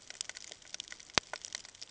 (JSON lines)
{"label": "ambient", "recorder": "HydroMoth"}